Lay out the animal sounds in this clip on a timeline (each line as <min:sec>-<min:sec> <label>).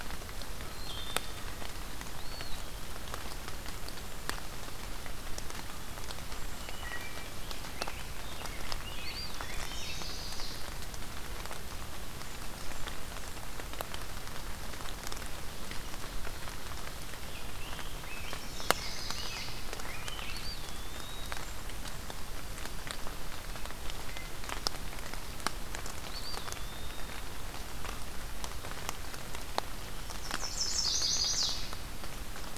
0:00.7-0:01.5 Wood Thrush (Hylocichla mustelina)
0:02.0-0:02.7 Eastern Wood-Pewee (Contopus virens)
0:06.4-0:07.3 Wood Thrush (Hylocichla mustelina)
0:07.6-0:10.1 Rose-breasted Grosbeak (Pheucticus ludovicianus)
0:08.9-0:10.1 Eastern Wood-Pewee (Contopus virens)
0:09.2-0:10.7 Chestnut-sided Warbler (Setophaga pensylvanica)
0:11.9-0:13.5 Blackburnian Warbler (Setophaga fusca)
0:17.2-0:20.4 Rose-breasted Grosbeak (Pheucticus ludovicianus)
0:18.3-0:19.6 Chestnut-sided Warbler (Setophaga pensylvanica)
0:20.2-0:21.5 Eastern Wood-Pewee (Contopus virens)
0:20.4-0:21.9 Blackburnian Warbler (Setophaga fusca)
0:25.9-0:27.3 Eastern Wood-Pewee (Contopus virens)
0:29.9-0:31.8 Chestnut-sided Warbler (Setophaga pensylvanica)